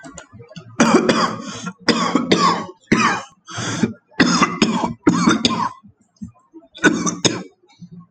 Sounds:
Cough